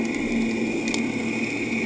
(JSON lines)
{"label": "anthrophony, boat engine", "recorder": "HydroMoth"}